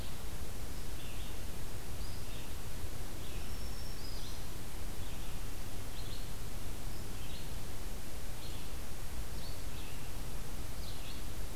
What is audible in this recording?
Red-eyed Vireo, Black-throated Green Warbler